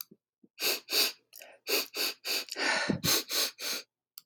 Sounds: Sniff